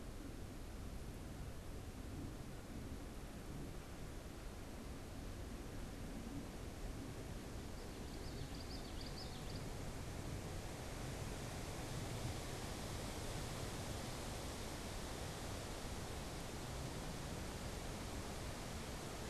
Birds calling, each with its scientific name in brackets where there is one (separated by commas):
Common Yellowthroat (Geothlypis trichas)